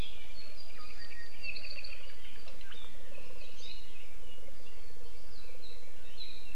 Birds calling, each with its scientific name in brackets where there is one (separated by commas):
Apapane (Himatione sanguinea)